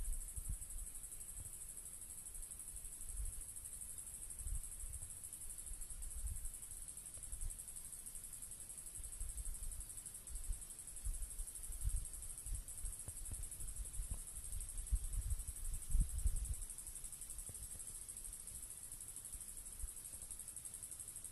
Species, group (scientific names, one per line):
Diceroprocta vitripennis
Cicadidae